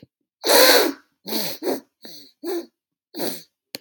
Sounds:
Sniff